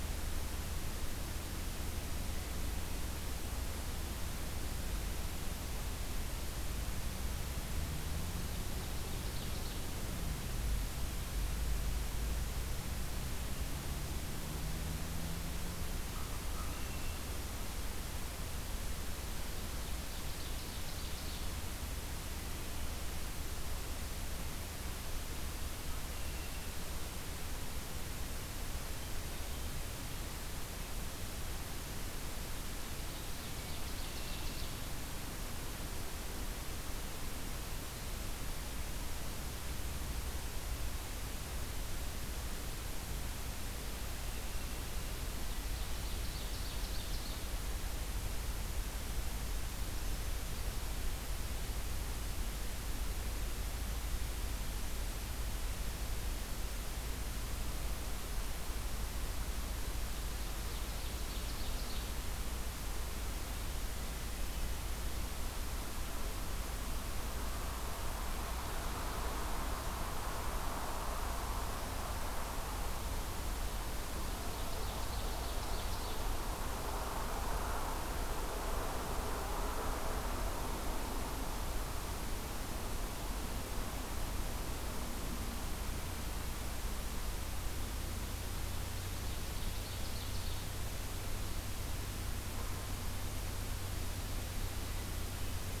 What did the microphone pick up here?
Ovenbird, American Crow